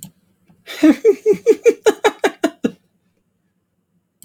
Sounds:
Laughter